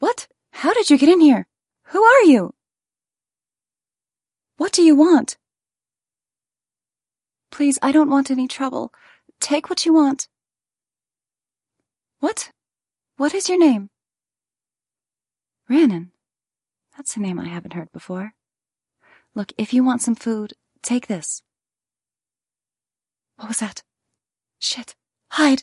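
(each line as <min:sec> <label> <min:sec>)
0:00.0 A female voice says phrases with pauses. 0:25.6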